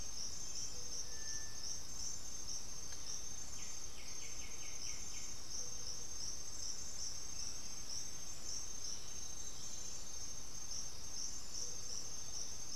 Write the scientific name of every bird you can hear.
Crypturellus cinereus, Pachyramphus polychopterus, unidentified bird, Myrmophylax atrothorax